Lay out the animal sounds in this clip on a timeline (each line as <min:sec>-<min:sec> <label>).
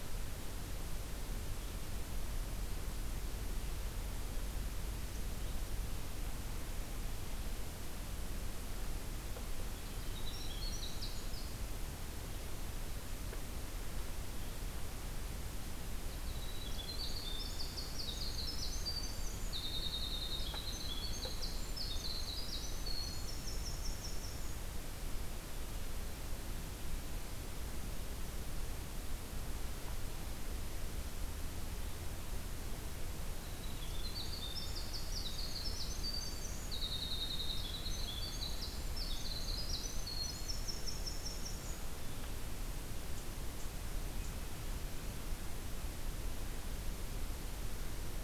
0:09.7-0:11.7 Winter Wren (Troglodytes hiemalis)
0:16.0-0:24.8 Winter Wren (Troglodytes hiemalis)
0:33.4-0:42.2 Winter Wren (Troglodytes hiemalis)